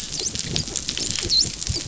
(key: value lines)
label: biophony, dolphin
recorder: SoundTrap 500